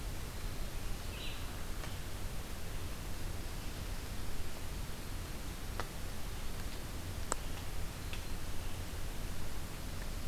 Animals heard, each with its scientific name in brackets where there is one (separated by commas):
Red-eyed Vireo (Vireo olivaceus)